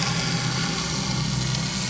{"label": "anthrophony, boat engine", "recorder": "SoundTrap 500"}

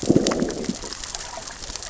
{"label": "biophony, growl", "recorder": "SoundTrap 600 or HydroMoth"}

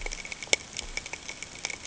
{"label": "ambient", "recorder": "HydroMoth"}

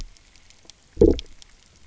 {"label": "biophony, low growl", "recorder": "SoundTrap 300"}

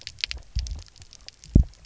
{"label": "biophony, double pulse", "recorder": "SoundTrap 300"}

